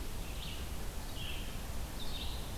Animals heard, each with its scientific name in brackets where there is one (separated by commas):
Red-eyed Vireo (Vireo olivaceus)